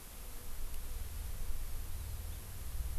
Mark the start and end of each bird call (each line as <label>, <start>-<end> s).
Hawaii Amakihi (Chlorodrepanis virens), 1.9-2.2 s